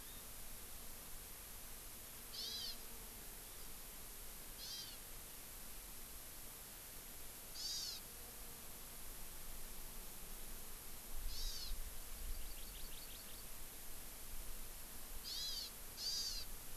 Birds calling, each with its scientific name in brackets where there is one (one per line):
Hawaii Amakihi (Chlorodrepanis virens)